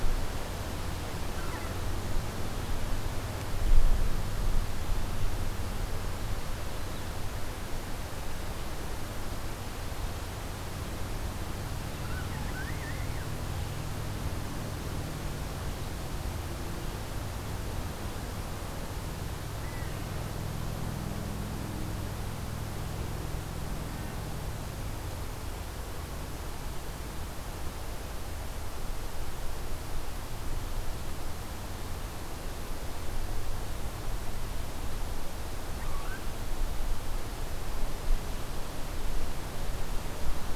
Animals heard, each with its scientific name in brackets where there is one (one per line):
unidentified call